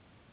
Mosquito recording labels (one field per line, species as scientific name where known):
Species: Anopheles gambiae s.s.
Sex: female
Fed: unfed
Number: one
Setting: insect culture